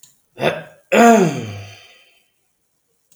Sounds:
Throat clearing